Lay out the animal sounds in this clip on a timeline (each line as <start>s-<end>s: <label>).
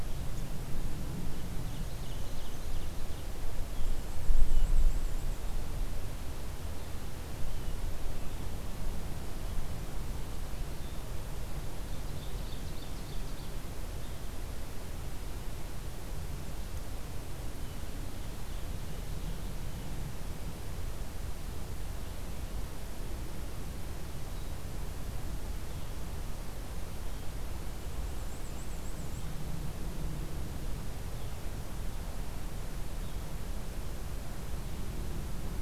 1.2s-3.4s: Ovenbird (Seiurus aurocapilla)
3.7s-5.6s: Black-and-white Warbler (Mniotilta varia)
11.8s-13.6s: Ovenbird (Seiurus aurocapilla)
28.0s-29.3s: Black-and-white Warbler (Mniotilta varia)